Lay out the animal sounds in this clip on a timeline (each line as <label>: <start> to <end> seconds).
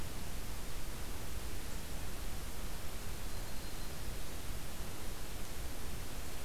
Black-throated Green Warbler (Setophaga virens): 3.2 to 4.0 seconds